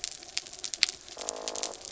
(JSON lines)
{"label": "anthrophony, mechanical", "recorder": "SoundTrap 300"}
{"label": "biophony", "recorder": "SoundTrap 300"}